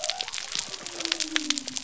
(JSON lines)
{"label": "biophony", "recorder": "SoundTrap 300"}